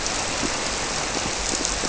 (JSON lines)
{"label": "biophony", "recorder": "SoundTrap 300"}